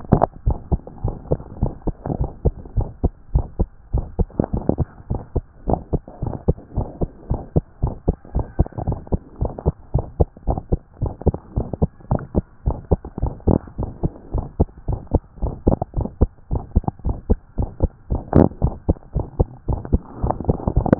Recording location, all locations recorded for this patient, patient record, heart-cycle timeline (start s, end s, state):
pulmonary valve (PV)
aortic valve (AV)+pulmonary valve (PV)+tricuspid valve (TV)+mitral valve (MV)
#Age: Child
#Sex: Female
#Height: 119.0 cm
#Weight: 26.5 kg
#Pregnancy status: False
#Murmur: Present
#Murmur locations: mitral valve (MV)+pulmonary valve (PV)
#Most audible location: mitral valve (MV)
#Systolic murmur timing: Early-systolic
#Systolic murmur shape: Decrescendo
#Systolic murmur grading: I/VI
#Systolic murmur pitch: Low
#Systolic murmur quality: Blowing
#Diastolic murmur timing: nan
#Diastolic murmur shape: nan
#Diastolic murmur grading: nan
#Diastolic murmur pitch: nan
#Diastolic murmur quality: nan
#Outcome: Abnormal
#Campaign: 2014 screening campaign
0.10	0.26	S2
0.26	0.46	diastole
0.46	0.58	S1
0.58	0.72	systole
0.72	0.82	S2
0.82	1.02	diastole
1.02	1.16	S1
1.16	1.30	systole
1.30	1.40	S2
1.40	1.60	diastole
1.60	1.72	S1
1.72	1.86	systole
1.86	1.96	S2
1.96	2.16	diastole
2.16	2.30	S1
2.30	2.44	systole
2.44	2.54	S2
2.54	2.76	diastole
2.76	2.88	S1
2.88	3.02	systole
3.02	3.12	S2
3.12	3.32	diastole
3.32	3.46	S1
3.46	3.60	systole
3.60	3.72	S2
3.72	3.94	diastole
3.94	4.06	S1
4.06	4.20	systole
4.20	4.30	S2
4.30	4.52	diastole
4.52	4.64	S1
4.64	4.78	systole
4.78	4.88	S2
4.88	5.10	diastole
5.10	5.22	S1
5.22	5.36	systole
5.36	5.46	S2
5.46	5.68	diastole
5.68	5.80	S1
5.80	5.92	systole
5.92	6.02	S2
6.02	6.22	diastole
6.22	6.34	S1
6.34	6.46	systole
6.46	6.56	S2
6.56	6.76	diastole
6.76	6.88	S1
6.88	7.00	systole
7.00	7.10	S2
7.10	7.30	diastole
7.30	7.42	S1
7.42	7.54	systole
7.54	7.64	S2
7.64	7.82	diastole
7.82	7.94	S1
7.94	8.08	systole
8.08	8.16	S2
8.16	8.34	diastole
8.34	8.46	S1
8.46	8.58	systole
8.58	8.68	S2
8.68	8.86	diastole
8.86	9.00	S1
9.00	9.12	systole
9.12	9.20	S2
9.20	9.40	diastole
9.40	9.52	S1
9.52	9.66	systole
9.66	9.74	S2
9.74	9.94	diastole
9.94	10.06	S1
10.06	10.18	systole
10.18	10.28	S2
10.28	10.48	diastole
10.48	10.60	S1
10.60	10.72	systole
10.72	10.82	S2
10.82	11.02	diastole
11.02	11.14	S1
11.14	11.28	systole
11.28	11.38	S2
11.38	11.56	diastole
11.56	11.68	S1
11.68	11.80	systole
11.80	11.90	S2
11.90	12.10	diastole
12.10	12.22	S1
12.22	12.36	systole
12.36	12.46	S2
12.46	12.66	diastole
12.66	12.78	S1
12.78	12.92	systole
12.92	13.02	S2
13.02	13.22	diastole
13.22	13.34	S1
13.34	13.48	systole
13.48	13.60	S2
13.60	13.80	diastole
13.80	13.92	S1
13.92	14.04	systole
14.04	14.14	S2
14.14	14.34	diastole
14.34	14.46	S1
14.46	14.58	systole
14.58	14.68	S2
14.68	14.88	diastole
14.88	15.00	S1
15.00	15.12	systole
15.12	15.22	S2
15.22	15.42	diastole
15.42	15.54	S1
15.54	15.66	systole
15.66	15.78	S2
15.78	15.96	diastole
15.96	16.08	S1
16.08	16.20	systole
16.20	16.30	S2
16.30	16.52	diastole
16.52	16.62	S1
16.62	16.74	systole
16.74	16.86	S2
16.86	17.06	diastole
17.06	17.18	S1
17.18	17.28	systole
17.28	17.38	S2
17.38	17.58	diastole
17.58	17.70	S1
17.70	17.82	systole
17.82	17.90	S2
17.90	18.10	diastole
18.10	18.22	S1
18.22	18.34	systole
18.34	18.50	S2
18.50	18.64	diastole
18.64	18.76	S1
18.76	18.88	systole
18.88	18.98	S2
18.98	19.16	diastole
19.16	19.26	S1
19.26	19.38	systole
19.38	19.48	S2
19.48	19.68	diastole
19.68	19.80	S1
19.80	19.92	systole
19.92	20.02	S2
20.02	20.22	diastole
20.22	20.36	S1
20.36	20.48	systole
20.48	20.58	S2
20.58	20.74	diastole
20.74	20.88	S1
20.88	20.99	systole